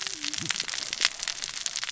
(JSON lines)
{"label": "biophony, cascading saw", "recorder": "SoundTrap 600 or HydroMoth"}